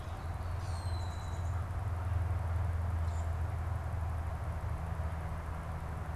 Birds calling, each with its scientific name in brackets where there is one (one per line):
Common Grackle (Quiscalus quiscula)